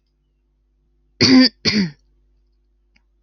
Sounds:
Throat clearing